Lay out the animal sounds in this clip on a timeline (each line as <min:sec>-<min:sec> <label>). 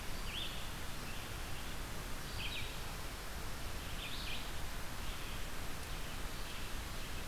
0:00.0-0:06.7 Red-eyed Vireo (Vireo olivaceus)